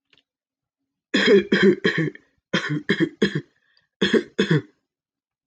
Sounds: Cough